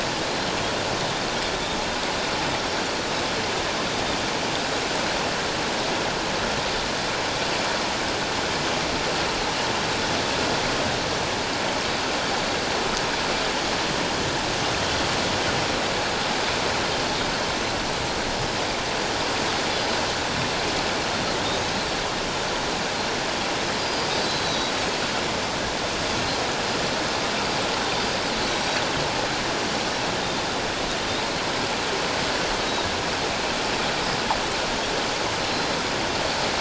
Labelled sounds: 21.5	21.8	Pacific white-sided dolphin, 6.4 to 6.6 kHz
23.8	24.1	Pacific white-sided dolphin, 4.7 to 5.0 kHz
24.4	24.7	Pacific white-sided dolphin, 3.8 to 5.9 kHz
28.5	28.8	Pacific white-sided dolphin, 5.5 to 5.9 kHz

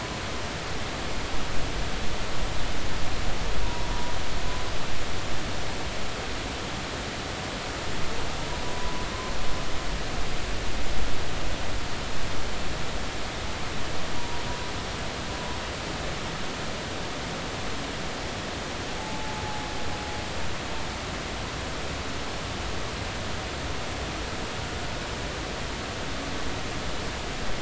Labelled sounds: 3.6	3.9	humpback whale, 0.93 to 1.1 kHz
8.6	9.1	humpback whale, 0.96 to 1.1 kHz
14.2	14.4	humpback whale, 0.93 to 1.0 kHz
19.0	19.5	humpback whale, 0.80 to 0.96 kHz

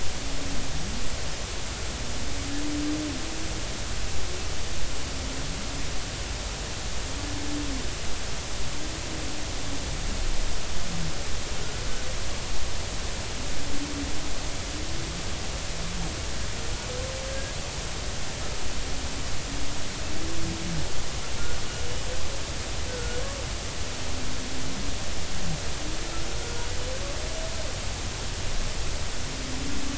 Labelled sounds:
17.3	17.6	humpback whale, 1.6 to 1.7 kHz
22.9	23.2	humpback whale, 1.4 to 1.6 kHz
26.4	26.7	humpback whale, 1.4 to 1.5 kHz

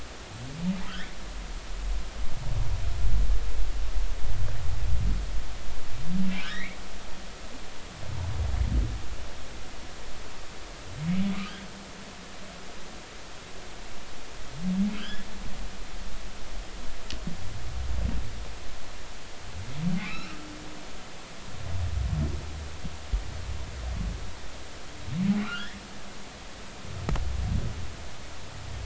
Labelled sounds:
0.9	1.1	humpback whale, 1.2 to 3.5 kHz
6.4	6.8	humpback whale, 1.4 to 2.4 kHz
14.9	15.3	humpback whale, 1.2 to 3.6 kHz
20.0	20.3	humpback whale, 2.0 to 5.4 kHz
25.4	25.8	humpback whale, 1.1 to 3.5 kHz

